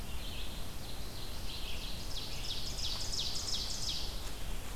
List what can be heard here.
Red-eyed Vireo, Ovenbird